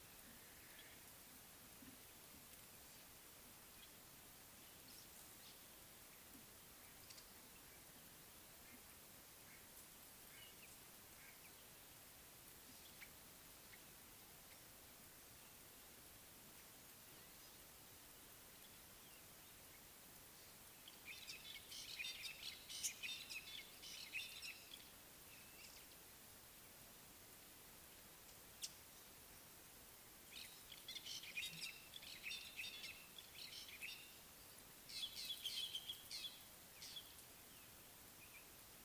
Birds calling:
African Gray Flycatcher (Bradornis microrhynchus), Fork-tailed Drongo (Dicrurus adsimilis)

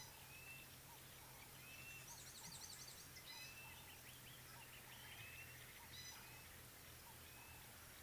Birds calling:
Gray-backed Camaroptera (Camaroptera brevicaudata)

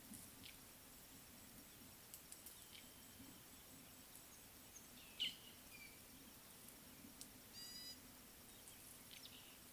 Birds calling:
Fork-tailed Drongo (Dicrurus adsimilis), Gray-backed Camaroptera (Camaroptera brevicaudata)

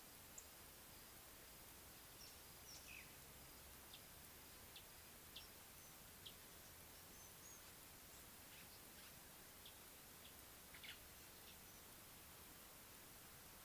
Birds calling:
Scarlet-chested Sunbird (Chalcomitra senegalensis), White-browed Sparrow-Weaver (Plocepasser mahali)

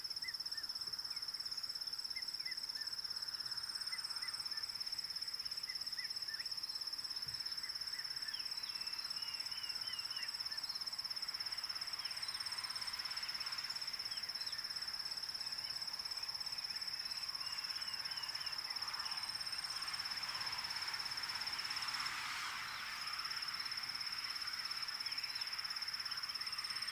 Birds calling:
Dideric Cuckoo (Chrysococcyx caprius)

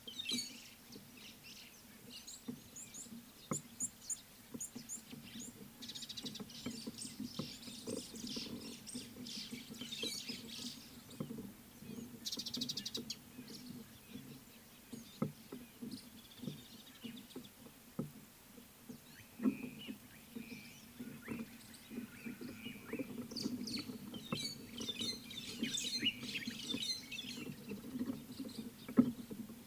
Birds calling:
Red-cheeked Cordonbleu (Uraeginthus bengalus), Mariqua Sunbird (Cinnyris mariquensis), White-headed Buffalo-Weaver (Dinemellia dinemelli), Rüppell's Starling (Lamprotornis purpuroptera)

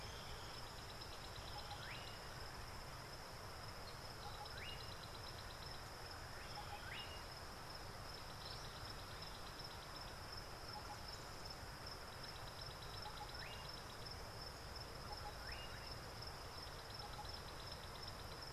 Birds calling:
African Bare-eyed Thrush (Turdus tephronotus)

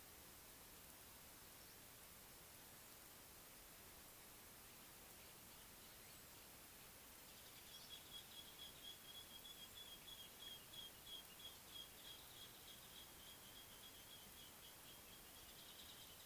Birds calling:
Nubian Woodpecker (Campethera nubica)

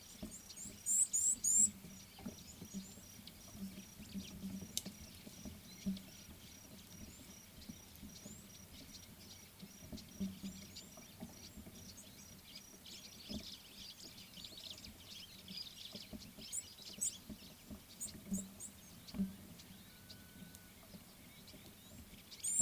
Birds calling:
Red-cheeked Cordonbleu (Uraeginthus bengalus), White-browed Sparrow-Weaver (Plocepasser mahali)

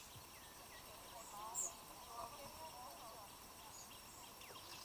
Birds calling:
White-eyed Slaty-Flycatcher (Melaenornis fischeri)

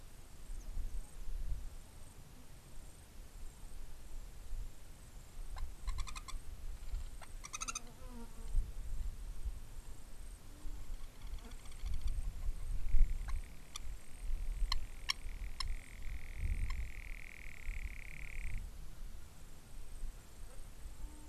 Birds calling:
Long-toed Lapwing (Vanellus crassirostris)

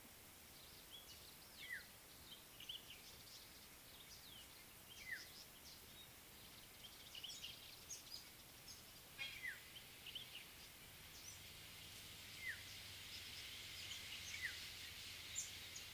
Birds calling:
African Black-headed Oriole (Oriolus larvatus), Common Bulbul (Pycnonotus barbatus), Speckled Mousebird (Colius striatus)

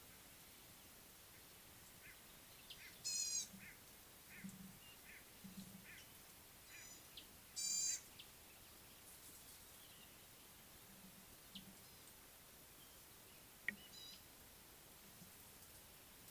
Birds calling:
White-bellied Go-away-bird (Corythaixoides leucogaster), Gray-backed Camaroptera (Camaroptera brevicaudata)

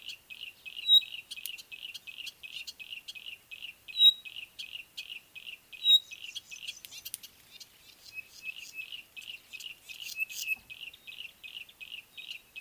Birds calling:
Yellow-breasted Apalis (Apalis flavida), Pygmy Batis (Batis perkeo)

